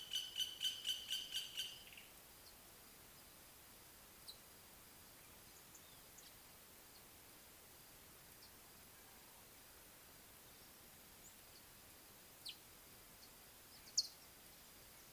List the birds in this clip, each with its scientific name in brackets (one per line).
Scarlet-chested Sunbird (Chalcomitra senegalensis)